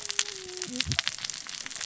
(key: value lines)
label: biophony, cascading saw
recorder: SoundTrap 600 or HydroMoth